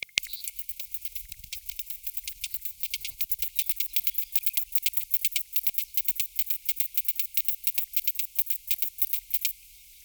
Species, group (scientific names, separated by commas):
Poecilimon mytilenensis, Orthoptera